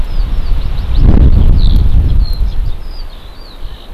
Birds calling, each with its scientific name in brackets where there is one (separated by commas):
Eurasian Skylark (Alauda arvensis)